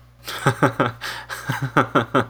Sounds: Laughter